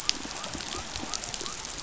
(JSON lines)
{"label": "biophony", "recorder": "SoundTrap 500"}